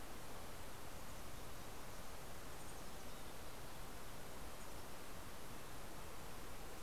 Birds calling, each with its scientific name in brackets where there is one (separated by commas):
Mountain Chickadee (Poecile gambeli)